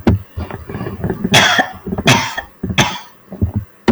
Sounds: Cough